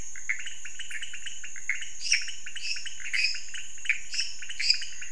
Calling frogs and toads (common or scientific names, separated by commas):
pointedbelly frog, Pithecopus azureus, lesser tree frog